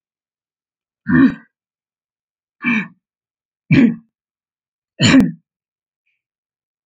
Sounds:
Throat clearing